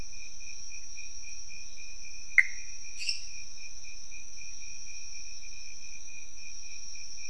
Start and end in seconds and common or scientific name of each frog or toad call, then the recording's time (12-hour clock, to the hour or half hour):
2.3	2.7	Pithecopus azureus
3.0	3.4	lesser tree frog
~2am